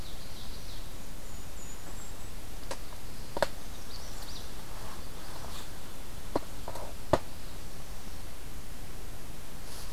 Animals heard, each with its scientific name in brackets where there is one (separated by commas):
Golden-crowned Kinglet (Regulus satrapa), Ovenbird (Seiurus aurocapilla), Magnolia Warbler (Setophaga magnolia)